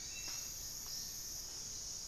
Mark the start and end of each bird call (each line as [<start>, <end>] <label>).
[0.00, 1.42] Black-faced Antthrush (Formicarius analis)
[0.00, 2.07] Amazonian Motmot (Momotus momota)
[0.00, 2.07] Hauxwell's Thrush (Turdus hauxwelli)